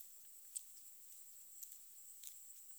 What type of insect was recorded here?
orthopteran